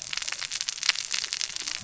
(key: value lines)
label: biophony, cascading saw
recorder: SoundTrap 600 or HydroMoth